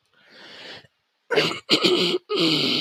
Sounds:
Throat clearing